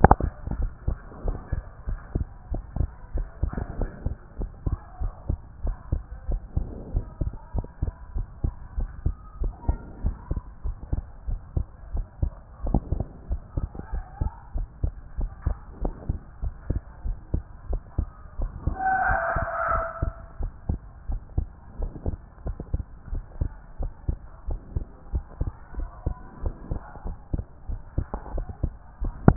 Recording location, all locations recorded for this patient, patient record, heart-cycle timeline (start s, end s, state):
pulmonary valve (PV)
aortic valve (AV)+pulmonary valve (PV)+tricuspid valve (TV)+mitral valve (MV)
#Age: Child
#Sex: Male
#Height: 142.0 cm
#Weight: 42.4 kg
#Pregnancy status: False
#Murmur: Absent
#Murmur locations: nan
#Most audible location: nan
#Systolic murmur timing: nan
#Systolic murmur shape: nan
#Systolic murmur grading: nan
#Systolic murmur pitch: nan
#Systolic murmur quality: nan
#Diastolic murmur timing: nan
#Diastolic murmur shape: nan
#Diastolic murmur grading: nan
#Diastolic murmur pitch: nan
#Diastolic murmur quality: nan
#Outcome: Normal
#Campaign: 2014 screening campaign
0.00	0.20	systole
0.20	0.32	S2
0.32	0.56	diastole
0.56	0.70	S1
0.70	0.86	systole
0.86	0.98	S2
0.98	1.24	diastole
1.24	1.38	S1
1.38	1.52	systole
1.52	1.64	S2
1.64	1.88	diastole
1.88	2.00	S1
2.00	2.14	systole
2.14	2.26	S2
2.26	2.50	diastole
2.50	2.62	S1
2.62	2.78	systole
2.78	2.90	S2
2.90	3.14	diastole
3.14	3.28	S1
3.28	3.42	systole
3.42	3.54	S2
3.54	3.78	diastole
3.78	3.90	S1
3.90	4.04	systole
4.04	4.16	S2
4.16	4.40	diastole
4.40	4.50	S1
4.50	4.66	systole
4.66	4.78	S2
4.78	5.02	diastole
5.02	5.12	S1
5.12	5.28	systole
5.28	5.38	S2
5.38	5.62	diastole
5.62	5.76	S1
5.76	5.90	systole
5.90	6.02	S2
6.02	6.28	diastole
6.28	6.40	S1
6.40	6.56	systole
6.56	6.68	S2
6.68	6.92	diastole
6.92	7.04	S1
7.04	7.20	systole
7.20	7.32	S2
7.32	7.56	diastole
7.56	7.68	S1
7.68	7.82	systole
7.82	7.92	S2
7.92	8.14	diastole
8.14	8.26	S1
8.26	8.42	systole
8.42	8.52	S2
8.52	8.76	diastole
8.76	8.90	S1
8.90	9.04	systole
9.04	9.16	S2
9.16	9.40	diastole
9.40	9.52	S1
9.52	9.66	systole
9.66	9.78	S2
9.78	10.02	diastole
10.02	10.16	S1
10.16	10.30	systole
10.30	10.42	S2
10.42	10.66	diastole
10.66	10.76	S1
10.76	10.92	systole
10.92	11.04	S2
11.04	11.28	diastole
11.28	11.40	S1
11.40	11.56	systole
11.56	11.66	S2
11.66	11.92	diastole
11.92	12.06	S1
12.06	12.22	systole
12.22	12.34	S2
12.34	12.64	diastole
12.64	12.80	S1
12.80	12.96	systole
12.96	13.08	S2
13.08	13.30	diastole
13.30	13.42	S1
13.42	13.58	systole
13.58	13.68	S2
13.68	13.94	diastole
13.94	14.04	S1
14.04	14.20	systole
14.20	14.30	S2
14.30	14.56	diastole
14.56	14.68	S1
14.68	14.82	systole
14.82	14.94	S2
14.94	15.18	diastole
15.18	15.30	S1
15.30	15.44	systole
15.44	15.58	S2
15.58	15.82	diastole
15.82	15.94	S1
15.94	16.08	systole
16.08	16.18	S2
16.18	16.44	diastole
16.44	16.54	S1
16.54	16.68	systole
16.68	16.80	S2
16.80	17.06	diastole
17.06	17.18	S1
17.18	17.32	systole
17.32	17.44	S2
17.44	17.70	diastole
17.70	17.82	S1
17.82	17.98	systole
17.98	18.10	S2
18.10	18.40	diastole
18.40	18.52	S1
18.52	18.68	systole
18.68	18.80	S2
18.80	19.08	diastole
19.08	19.20	S1
19.20	19.36	systole
19.36	19.46	S2
19.46	19.72	diastole
19.72	19.84	S1
19.84	20.02	systole
20.02	20.14	S2
20.14	20.40	diastole
20.40	20.52	S1
20.52	20.70	systole
20.70	20.80	S2
20.80	21.08	diastole
21.08	21.20	S1
21.20	21.36	systole
21.36	21.48	S2
21.48	21.78	diastole
21.78	21.90	S1
21.90	22.06	systole
22.06	22.18	S2
22.18	22.46	diastole
22.46	22.56	S1
22.56	22.72	systole
22.72	22.84	S2
22.84	23.10	diastole
23.10	23.24	S1
23.24	23.40	systole
23.40	23.52	S2
23.52	23.80	diastole
23.80	23.92	S1
23.92	24.08	systole
24.08	24.20	S2
24.20	24.48	diastole
24.48	24.60	S1
24.60	24.74	systole
24.74	24.86	S2
24.86	25.12	diastole
25.12	25.24	S1
25.24	25.40	systole
25.40	25.52	S2
25.52	25.76	diastole
25.76	25.88	S1
25.88	26.04	systole
26.04	26.16	S2
26.16	26.44	diastole
26.44	26.54	S1
26.54	26.70	systole
26.70	26.80	S2
26.80	27.06	diastole
27.06	27.16	S1
27.16	27.34	systole
27.34	27.44	S2
27.44	27.70	diastole
27.70	27.80	S1
27.80	27.96	systole
27.96	28.06	S2
28.06	28.32	diastole
28.32	28.46	S1
28.46	28.62	systole
28.62	28.74	S2
28.74	29.02	diastole
29.02	29.14	S1
29.14	29.26	systole
29.26	29.36	S2